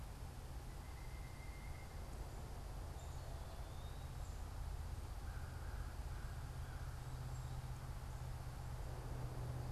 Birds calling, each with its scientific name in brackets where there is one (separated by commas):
American Crow (Corvus brachyrhynchos), unidentified bird